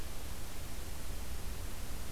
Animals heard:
forest ambience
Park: Acadia National Park